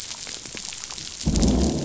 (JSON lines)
{"label": "biophony, growl", "recorder": "SoundTrap 500"}